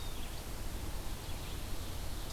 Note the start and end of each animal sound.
0.0s-2.3s: Red-eyed Vireo (Vireo olivaceus)

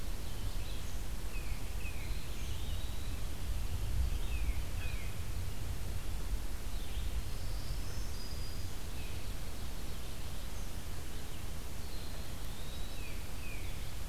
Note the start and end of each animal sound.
0.1s-14.1s: Blue-headed Vireo (Vireo solitarius)
1.2s-2.4s: Tufted Titmouse (Baeolophus bicolor)
1.9s-3.4s: Eastern Wood-Pewee (Contopus virens)
4.1s-5.4s: Tufted Titmouse (Baeolophus bicolor)
7.2s-8.9s: Black-throated Green Warbler (Setophaga virens)
11.8s-13.2s: Eastern Wood-Pewee (Contopus virens)
12.7s-14.0s: Tufted Titmouse (Baeolophus bicolor)

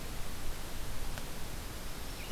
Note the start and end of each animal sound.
0.0s-2.3s: Red-eyed Vireo (Vireo olivaceus)

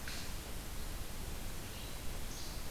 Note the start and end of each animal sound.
0.0s-2.7s: Red-eyed Vireo (Vireo olivaceus)
2.2s-2.5s: Least Flycatcher (Empidonax minimus)

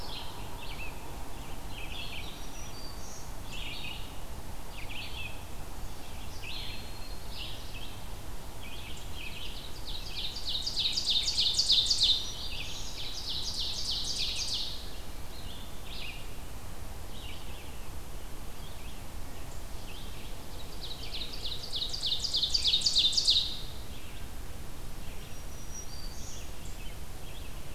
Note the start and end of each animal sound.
0.0s-27.7s: Red-eyed Vireo (Vireo olivaceus)
1.9s-3.4s: Black-throated Green Warbler (Setophaga virens)
5.7s-7.6s: Black-throated Green Warbler (Setophaga virens)
9.4s-15.0s: Ovenbird (Seiurus aurocapilla)
11.4s-13.0s: Black-throated Green Warbler (Setophaga virens)
20.5s-23.6s: Ovenbird (Seiurus aurocapilla)
25.0s-26.6s: Black-throated Green Warbler (Setophaga virens)

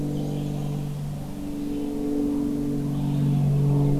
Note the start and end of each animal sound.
0.0s-1.1s: Black-and-white Warbler (Mniotilta varia)
0.0s-4.0s: Red-eyed Vireo (Vireo olivaceus)

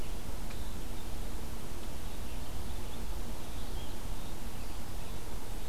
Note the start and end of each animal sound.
0.0s-5.7s: Red-eyed Vireo (Vireo olivaceus)
4.5s-5.7s: Eastern Wood-Pewee (Contopus virens)

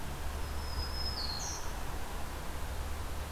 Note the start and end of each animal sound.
0.3s-1.8s: Black-throated Green Warbler (Setophaga virens)

